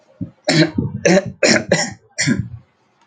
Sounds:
Throat clearing